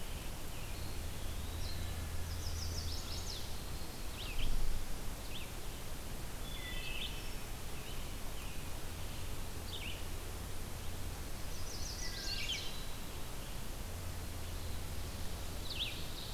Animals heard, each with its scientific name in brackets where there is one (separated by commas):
Ovenbird (Seiurus aurocapilla), Wood Thrush (Hylocichla mustelina), Red-eyed Vireo (Vireo olivaceus), Chestnut-sided Warbler (Setophaga pensylvanica), Eastern Wood-Pewee (Contopus virens)